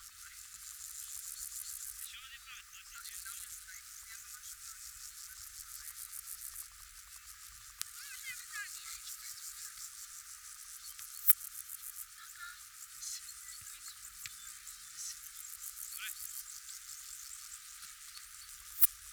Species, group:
Poecilimon affinis, Orthoptera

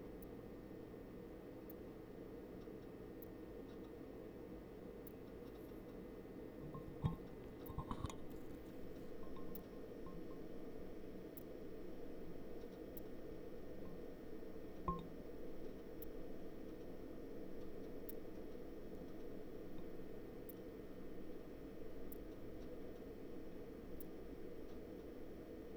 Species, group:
Leptophyes punctatissima, Orthoptera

